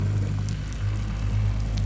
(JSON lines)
{"label": "anthrophony, boat engine", "recorder": "SoundTrap 500"}